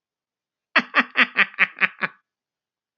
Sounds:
Laughter